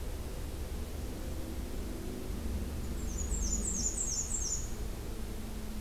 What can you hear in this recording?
Black-and-white Warbler